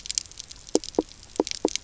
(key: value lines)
label: biophony, knock croak
recorder: SoundTrap 300